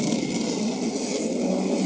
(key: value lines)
label: anthrophony, boat engine
recorder: HydroMoth